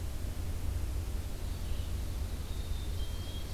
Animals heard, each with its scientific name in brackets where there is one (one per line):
Red-eyed Vireo (Vireo olivaceus)
Ovenbird (Seiurus aurocapilla)
Black-capped Chickadee (Poecile atricapillus)